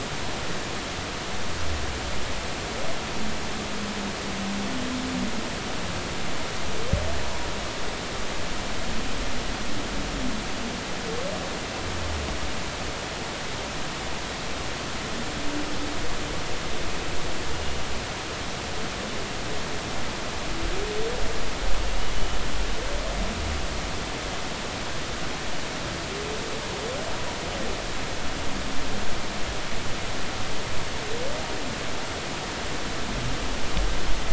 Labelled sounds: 17.5	17.8	humpback whale, 2.8 to 2.9 kHz
22.1	22.4	humpback whale, 2.9 to 3.1 kHz

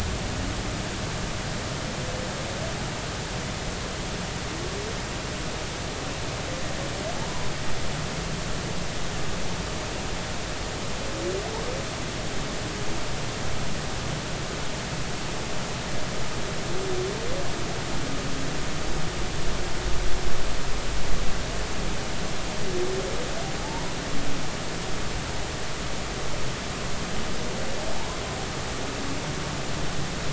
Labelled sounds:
23.6	23.9	humpback whale, 0.80 to 1.1 kHz
27.9	28.2	humpback whale, 0.80 to 1.1 kHz

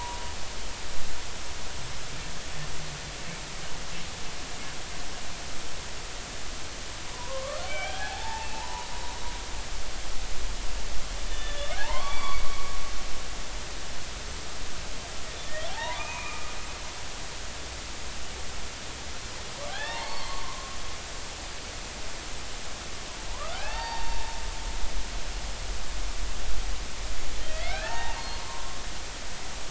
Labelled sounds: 7.1	8.9	humpback whale, 0.80 to 3.3 kHz
11.3	12.7	humpback whale, 0.80 to 4.7 kHz
15.7	16.5	humpback whale, 0.80 to 2.6 kHz
19.7	20.7	humpback whale, 0.80 to 4.5 kHz
23.3	24.4	humpback whale, 0.80 to 4.7 kHz
27.4	28.7	humpback whale, 0.80 to 4.4 kHz

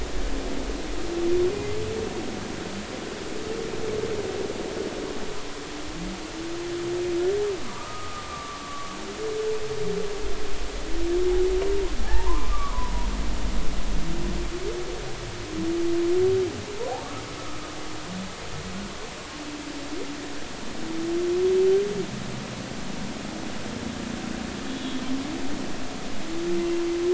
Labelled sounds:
7.6	9.0	humpback whale, 0.90 to 1.3 kHz
12.1	12.9	humpback whale, 0.80 to 1.3 kHz
24.7	25.0	humpback whale, 3.3 to 3.5 kHz

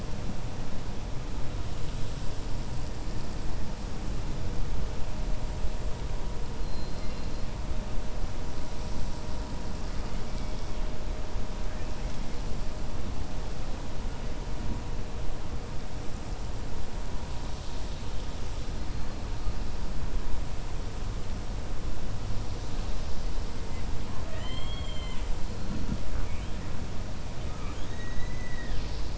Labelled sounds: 6.6	7.4	killer whale, 2.1 to 4.5 kHz
24.1	25.3	killer whale, 0.66 to 4.4 kHz
26.1	26.5	killer whale, 1.1 to 3.2 kHz
27.5	29.1	killer whale, 1.2 to 5.5 kHz

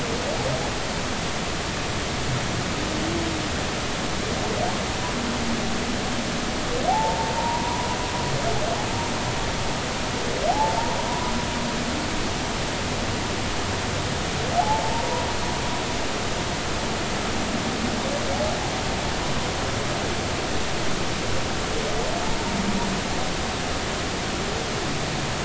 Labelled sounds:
6.9	7.9	humpback whale, 0.80 to 1.0 kHz
10.5	10.8	humpback whale, 0.80 to 0.93 kHz
11.1	11.3	humpback whale, 0.93 to 1.1 kHz
14.6	15.3	humpback whale, 0.80 to 1.0 kHz

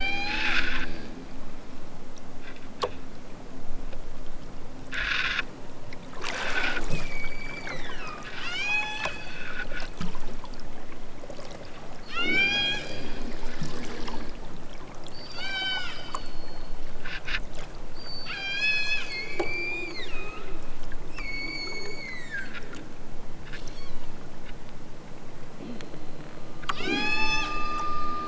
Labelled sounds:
0.1	0.6	killer whale, southern Alaska resident, 0.60 to 8.0 kHz
6.8	9.5	killer whale, southern Alaska resident, 0.32 to 8.0 kHz
12.0	13.2	killer whale, southern Alaska resident, 1.0 to 8.0 kHz
15.1	16.8	killer whale, southern Alaska resident, 0.41 to 8.0 kHz
17.8	20.7	killer whale, southern Alaska resident, 0.88 to 8.0 kHz
21.1	22.9	killer whale, southern Alaska resident, 0.92 to 8.0 kHz
26.7	28.0	killer whale, southern Alaska resident, 0.46 to 8.0 kHz

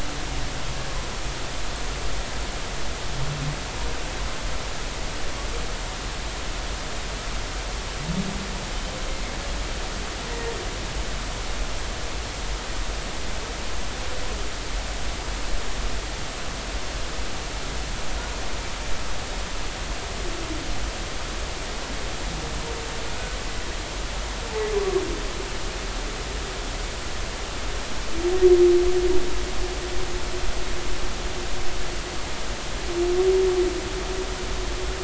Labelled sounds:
10.3	10.6	humpback whale, 1.6 to 2.0 kHz
23.1	23.4	humpback whale, 1.4 to 1.5 kHz

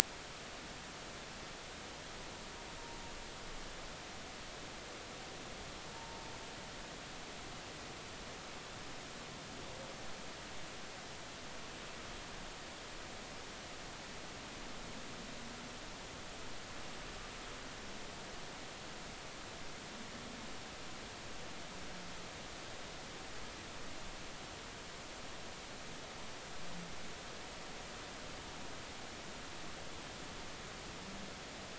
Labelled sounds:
5.9	6.3	humpback whale, 0.86 to 0.96 kHz

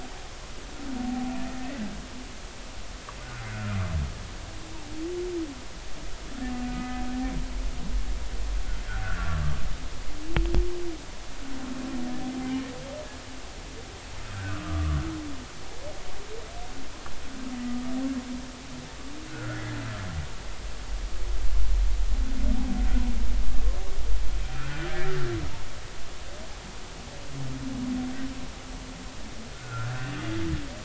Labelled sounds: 1.0	1.8	humpback whale, 0.80 to 2.0 kHz
3.2	3.8	humpback whale, 1.2 to 1.6 kHz
6.7	7.0	humpback whale, 2.0 to 2.1 kHz
7.7	8.0	humpback whale, 1.2 to 1.3 kHz
9.0	9.4	humpback whale, 1.3 to 1.7 kHz
14.3	15.0	humpback whale, 1.1 to 1.7 kHz
19.3	19.6	humpback whale, 1.3 to 1.6 kHz
24.4	24.9	humpback whale, 1.3 to 2.5 kHz
29.5	29.9	humpback whale, 1.3 to 1.6 kHz

